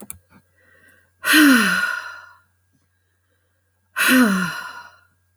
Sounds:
Sigh